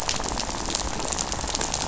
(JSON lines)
{"label": "biophony, rattle", "recorder": "SoundTrap 500"}